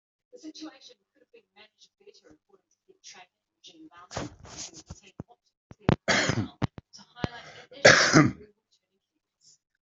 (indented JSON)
{
  "expert_labels": [
    {
      "quality": "good",
      "cough_type": "dry",
      "dyspnea": false,
      "wheezing": false,
      "stridor": false,
      "choking": false,
      "congestion": false,
      "nothing": true,
      "diagnosis": "healthy cough",
      "severity": "pseudocough/healthy cough"
    }
  ],
  "age": 43,
  "gender": "male",
  "respiratory_condition": false,
  "fever_muscle_pain": false,
  "status": "symptomatic"
}